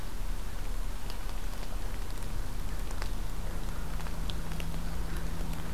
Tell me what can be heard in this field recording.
forest ambience